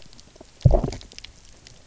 {"label": "biophony, low growl", "recorder": "SoundTrap 300"}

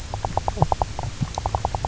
{"label": "biophony, knock croak", "recorder": "SoundTrap 300"}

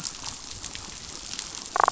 {"label": "biophony, damselfish", "recorder": "SoundTrap 500"}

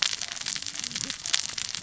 {"label": "biophony, cascading saw", "recorder": "SoundTrap 600 or HydroMoth"}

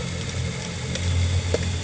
{"label": "anthrophony, boat engine", "recorder": "HydroMoth"}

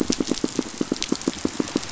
{"label": "biophony, pulse", "recorder": "SoundTrap 500"}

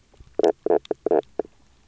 {"label": "biophony, knock croak", "recorder": "SoundTrap 300"}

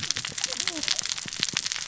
{"label": "biophony, cascading saw", "recorder": "SoundTrap 600 or HydroMoth"}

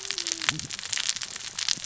{"label": "biophony, cascading saw", "recorder": "SoundTrap 600 or HydroMoth"}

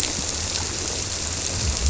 {"label": "biophony", "recorder": "SoundTrap 300"}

